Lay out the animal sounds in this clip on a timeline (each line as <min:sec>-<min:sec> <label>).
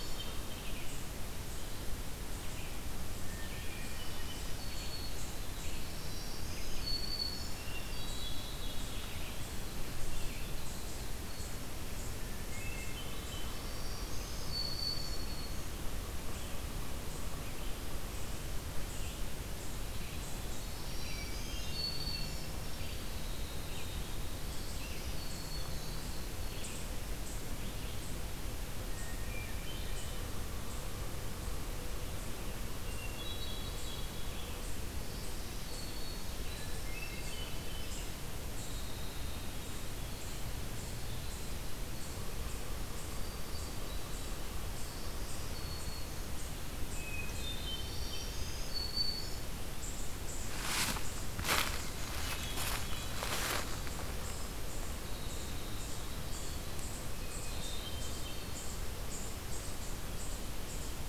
0:00.0-0:00.6 Black-throated Green Warbler (Setophaga virens)
0:00.0-0:36.8 Red-eyed Vireo (Vireo olivaceus)
0:03.0-0:05.1 Hermit Thrush (Catharus guttatus)
0:05.6-0:08.0 Black-throated Green Warbler (Setophaga virens)
0:07.6-0:09.3 Hermit Thrush (Catharus guttatus)
0:12.0-0:13.8 Hermit Thrush (Catharus guttatus)
0:13.0-0:17.8 Yellow-bellied Sapsucker (Sphyrapicus varius)
0:13.4-0:15.8 Black-throated Green Warbler (Setophaga virens)
0:20.4-0:21.8 Hermit Thrush (Catharus guttatus)
0:20.6-0:22.9 Black-throated Green Warbler (Setophaga virens)
0:22.8-0:24.9 Winter Wren (Troglodytes hiemalis)
0:24.8-0:26.4 Black-throated Green Warbler (Setophaga virens)
0:28.7-0:30.5 Hermit Thrush (Catharus guttatus)
0:30.0-0:35.0 Yellow-bellied Sapsucker (Sphyrapicus varius)
0:32.8-0:34.8 Hermit Thrush (Catharus guttatus)
0:34.9-0:36.5 Black-throated Green Warbler (Setophaga virens)
0:36.4-0:38.3 Hermit Thrush (Catharus guttatus)
0:38.5-0:42.8 Winter Wren (Troglodytes hiemalis)
0:42.1-0:46.1 Yellow-bellied Sapsucker (Sphyrapicus varius)
0:42.8-0:46.7 Black-throated Green Warbler (Setophaga virens)
0:46.7-0:48.6 Hermit Thrush (Catharus guttatus)
0:47.7-0:50.1 Black-throated Green Warbler (Setophaga virens)
0:52.1-0:53.4 Hermit Thrush (Catharus guttatus)
0:53.8-1:01.1 Eastern Chipmunk (Tamias striatus)
0:54.7-0:56.9 Winter Wren (Troglodytes hiemalis)
0:57.1-0:58.8 Hermit Thrush (Catharus guttatus)